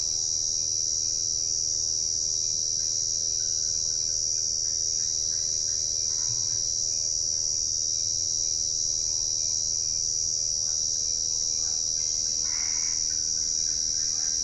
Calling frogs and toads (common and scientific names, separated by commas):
Boana albopunctata, Physalaemus cuvieri